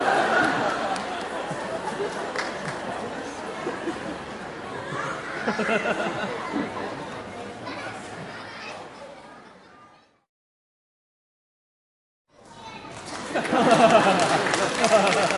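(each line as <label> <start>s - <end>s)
People are talking indistinctly in the background. 0.0s - 10.0s
People laughing in the background. 0.0s - 1.2s
A man laughs briefly with a clear burst of sound. 5.4s - 6.8s
A man laughs briefly with a clear burst of sound. 13.3s - 15.4s
People applauding with rhythmic clapping. 14.1s - 15.4s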